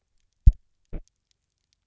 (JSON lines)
{"label": "biophony, double pulse", "recorder": "SoundTrap 300"}